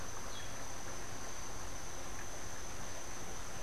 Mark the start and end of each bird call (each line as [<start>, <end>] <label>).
[0.14, 0.74] Yellow-throated Euphonia (Euphonia hirundinacea)